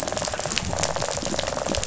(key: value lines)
label: biophony, rattle response
recorder: SoundTrap 500